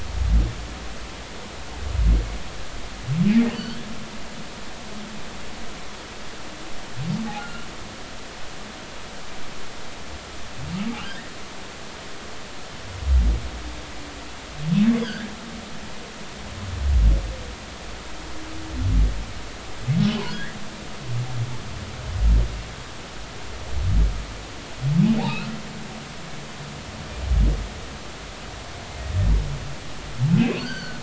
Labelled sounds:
7.4	7.7	humpback whale, 1.3 to 3.0 kHz
11.0	11.3	humpback whale, 1.4 to 2.0 kHz
15.0	15.3	humpback whale, 1.4 to 5.1 kHz
20.2	20.6	humpback whale, 1.4 to 2.0 kHz
25.2	25.5	humpback whale, 1.2 to 4.3 kHz
30.4	31.0	humpback whale, 1.4 to 4.8 kHz

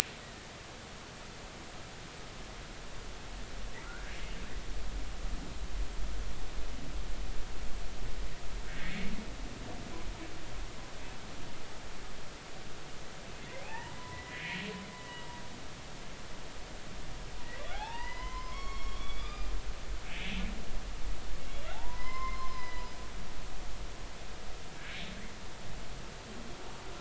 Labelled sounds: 3.8	4.1	humpback whale, 1.3 to 1.7 kHz
8.7	9.1	humpback whale, 1.7 to 2.3 kHz
13.6	14.6	humpback whale, 0.80 to 2.7 kHz
14.9	15.3	humpback whale, 1.9 to 2.0 kHz
17.7	20.4	humpback whale, 0.80 to 5.6 kHz
21.7	23.4	humpback whale, 0.80 to 5.3 kHz

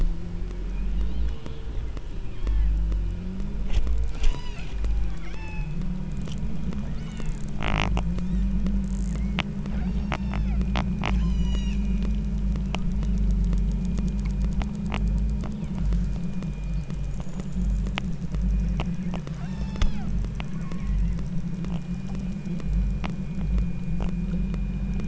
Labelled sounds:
0.7	1.7	killer whale, southern Alaska resident, 2.2 to 4.5 kHz
2.4	2.8	killer whale, southern Alaska resident, 0.82 to 3.4 kHz
4.2	4.8	killer whale, southern Alaska resident, 0.80 to 8.0 kHz
5.3	5.8	killer whale, southern Alaska resident, 0.64 to 8.0 kHz
7.0	7.5	killer whale, southern Alaska resident, 0.71 to 5.5 kHz
9.1	9.4	killer whale, southern Alaska resident, 1.7 to 2.5 kHz
9.8	10.6	killer whale, southern Alaska resident, 1.6 to 8.0 kHz
11.2	11.9	killer whale, southern Alaska resident, 0.78 to 8.0 kHz
15.5	15.9	killer whale, southern Alaska resident, 1.9 to 3.8 kHz
19.5	20.1	killer whale, southern Alaska resident, 0.55 to 8.0 kHz
20.5	21.2	killer whale, southern Alaska resident, 0.78 to 2.3 kHz

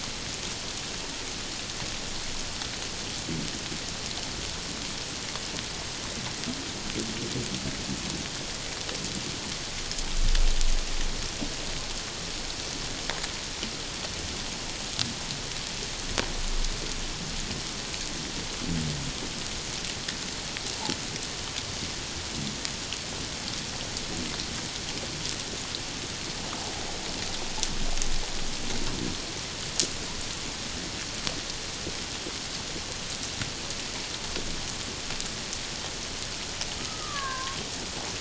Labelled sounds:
36.8	37.6	killer whale, Bigg's (transient), 0.97 to 1.8 kHz

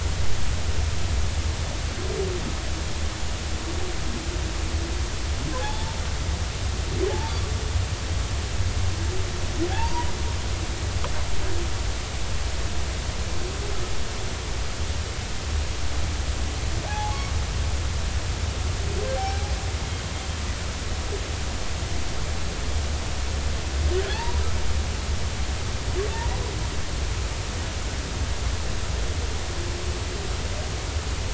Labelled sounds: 5.6	6.0	humpback whale, 0.80 to 3.5 kHz
9.7	10.1	humpback whale, 0.80 to 1.0 kHz
16.9	17.2	humpback whale, 0.80 to 0.90 kHz
19.2	19.5	humpback whale, 0.80 to 2.4 kHz
24.0	24.4	humpback whale, 0.80 to 2.0 kHz

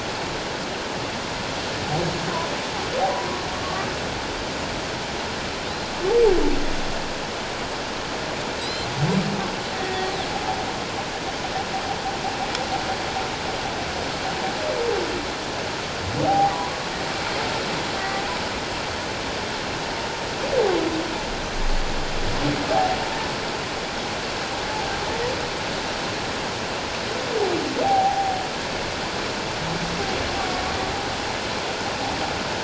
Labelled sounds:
8.6	8.9	Pacific white-sided dolphin, 3.8 to 4.2 kHz
9.7	10.1	humpback whale, 1.8 to 2.0 kHz
16.2	16.5	humpback whale, 0.78 to 0.91 kHz
22.7	23.0	humpback whale, 0.78 to 0.91 kHz
27.8	28.4	humpback whale, 0.78 to 0.91 kHz

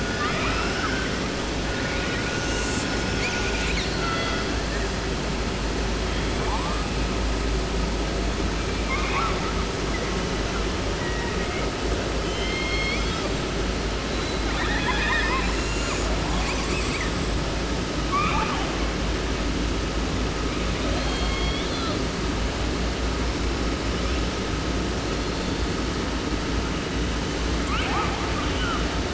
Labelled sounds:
0.0	1.3	killer whale, 0.30 to 6.1 kHz
1.6	4.9	killer whale, southern resident, call S10, 0.73 to 8.0 kHz
6.1	7.1	killer whale, 0.53 to 4.4 kHz
8.8	9.5	killer whale, 0.30 to 3.0 kHz
10.9	11.8	killer whale, 0.68 to 2.6 kHz
12.2	13.4	killer whale, southern resident, J pod, call S01, 0.84 to 6.7 kHz
14.0	17.5	killer whale, southern resident, J pod, call S10, 0.30 to 8.0 kHz
18.0	18.9	killer whale, southern resident, 0.30 to 4.0 kHz
20.8	22.1	killer whale, southern resident, J pod, call S01, 0.30 to 5.7 kHz
23.2	24.7	killer whale, 0.57 to 5.6 kHz
25.0	25.8	killer whale, 1.8 to 5.6 kHz
27.5	29.0	killer whale, 0.30 to 3.8 kHz

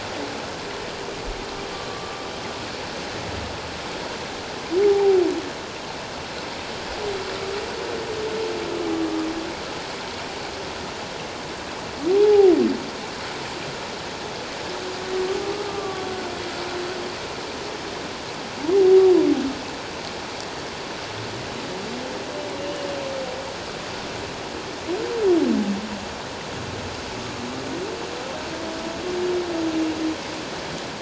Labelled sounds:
1.9	2.2	humpback whale, 1.1 to 1.2 kHz
4.9	5.2	humpback whale, 0.78 to 0.94 kHz
12.1	12.5	humpback whale, 0.78 to 0.91 kHz
15.7	16.1	humpback whale, 1.1 to 1.2 kHz
22.6	22.9	humpback whale, 2.8 to 3.0 kHz

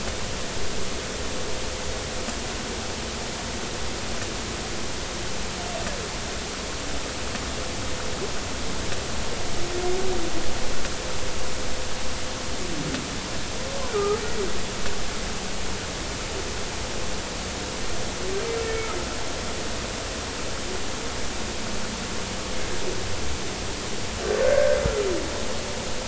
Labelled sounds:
13.8	14.2	humpback whale, 1.2 to 1.5 kHz
18.6	18.9	humpback whale, 2.2 to 2.3 kHz
24.4	24.8	humpback whale, 1.4 to 1.8 kHz

